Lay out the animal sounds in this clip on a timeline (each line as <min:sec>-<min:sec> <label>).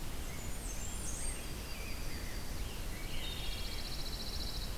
0:00.0-0:03.4 Rose-breasted Grosbeak (Pheucticus ludovicianus)
0:00.0-0:01.6 Blackburnian Warbler (Setophaga fusca)
0:01.0-0:02.9 Yellow-rumped Warbler (Setophaga coronata)
0:02.7-0:04.8 Pine Warbler (Setophaga pinus)
0:02.8-0:04.0 Wood Thrush (Hylocichla mustelina)